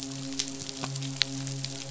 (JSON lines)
{"label": "biophony, midshipman", "recorder": "SoundTrap 500"}